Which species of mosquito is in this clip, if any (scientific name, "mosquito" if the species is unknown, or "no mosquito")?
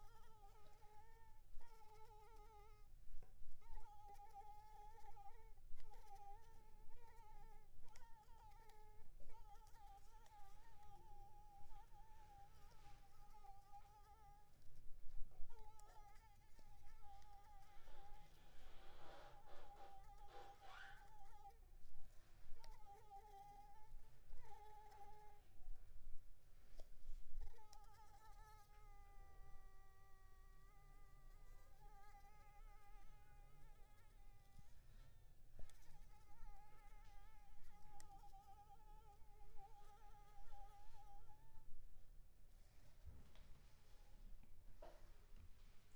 Anopheles arabiensis